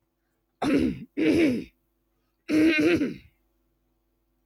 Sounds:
Throat clearing